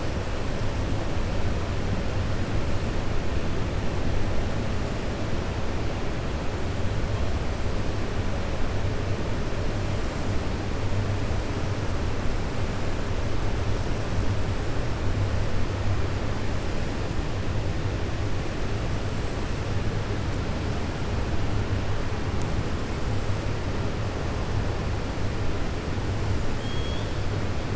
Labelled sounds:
26.5	27.1	killer whale, 3.2 to 4.4 kHz

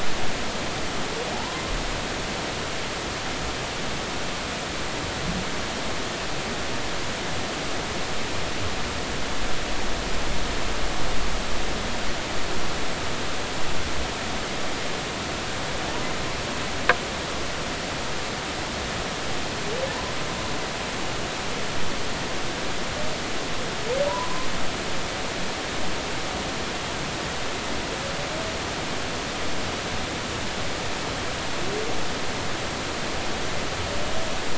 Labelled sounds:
1.3	1.6	humpback whale, 0.80 to 1.1 kHz
15.9	16.1	humpback whale, 0.83 to 1.0 kHz
24.1	24.5	humpback whale, 0.90 to 1.1 kHz

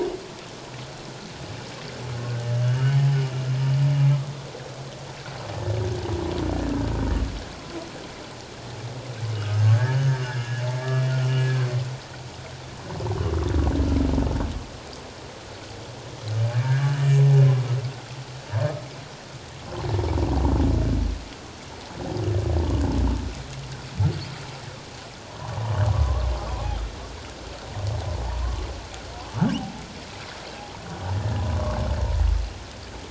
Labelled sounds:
9.3	10.2	humpback whale, 1.2 to 6.6 kHz
10.8	11.0	humpback whale, 1.6 to 1.8 kHz
16.4	17.2	humpback whale, 1.8 to 3.0 kHz
25.4	26.8	humpback whale, 0.78 to 3.2 kHz
28.2	28.6	humpback whale, 0.78 to 1.2 kHz
29.6	29.8	humpback whale, 0.78 to 0.91 kHz
31.4	31.8	humpback whale, 0.97 to 1.2 kHz

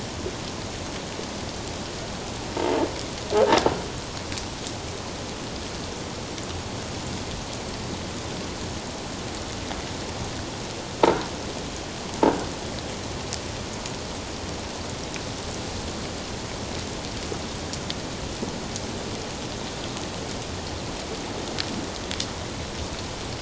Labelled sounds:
3.4	3.7	croaking sound likely from a nearby submerged object, 1.5 to 1.8 kHz

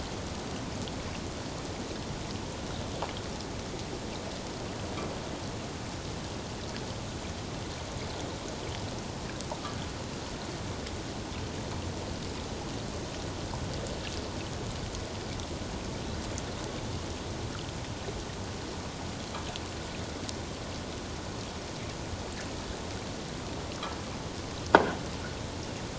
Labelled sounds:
24.7	25.0	croaking sound likely from a nearby submerged object, 1.4 to 1.7 kHz

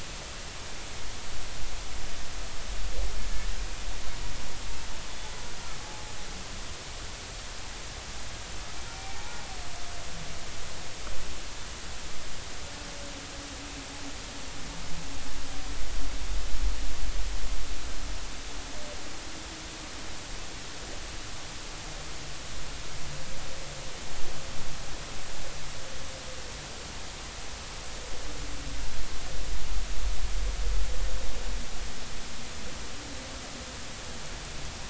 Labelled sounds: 5.8	6.1	humpback whale, 0.80 to 0.90 kHz
9.1	9.4	humpback whale, 0.80 to 0.93 kHz

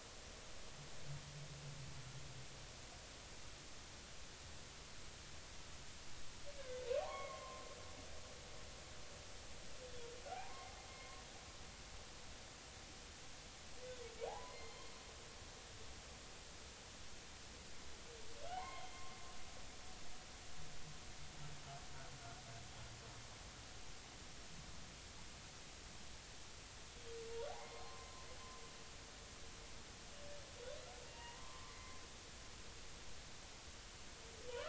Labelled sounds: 7.0	7.7	humpback whale, 0.80 to 2.3 kHz
10.2	11.2	humpback whale, 0.80 to 2.2 kHz
14.3	15.0	humpback whale, 0.80 to 4.4 kHz
18.5	19.0	humpback whale, 0.80 to 3.3 kHz
27.5	28.2	humpback whale, 0.80 to 1.1 kHz
31.1	31.8	humpback whale, 0.90 to 2.9 kHz
32.7	33.0	humpback whale, 2.0 to 2.2 kHz

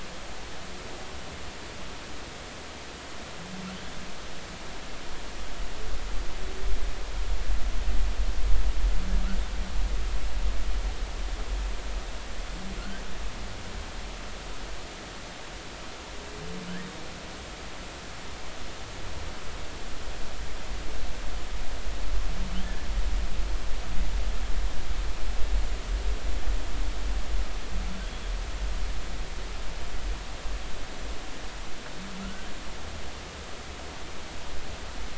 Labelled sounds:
12.8	13.0	humpback whale, 1.3 to 1.8 kHz
22.6	22.9	humpback whale, 1.7 to 1.8 kHz
32.2	32.5	humpback whale, 1.2 to 1.7 kHz

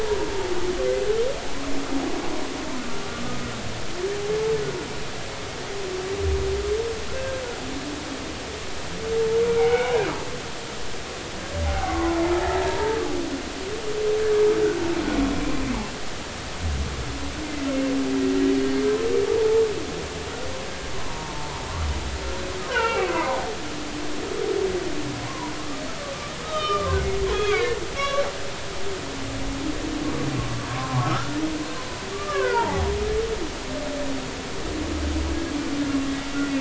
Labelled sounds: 7.2	7.4	humpback whale, 1.5 to 1.7 kHz
9.5	10.0	humpback whale, 0.80 to 2.4 kHz
11.6	13.0	humpback whale, 0.80 to 2.0 kHz
20.9	21.5	humpback whale, 0.86 to 1.1 kHz
22.7	24.1	humpback whale, 0.80 to 3.1 kHz
25.2	25.5	humpback whale, 0.90 to 1.2 kHz
26.4	28.3	humpback whale, 0.99 to 4.0 kHz
30.7	31.4	humpback whale, 0.80 to 1.5 kHz
32.1	32.9	humpback whale, 0.80 to 1.8 kHz

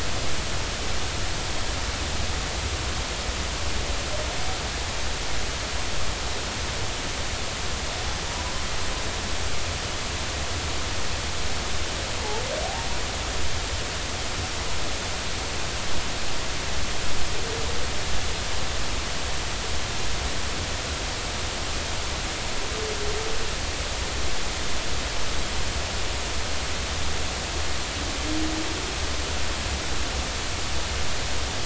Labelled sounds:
8.3	8.5	humpback whale, 0.93 to 1.1 kHz

